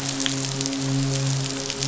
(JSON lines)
{"label": "biophony, midshipman", "recorder": "SoundTrap 500"}